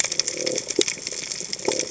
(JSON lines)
{"label": "biophony", "recorder": "HydroMoth"}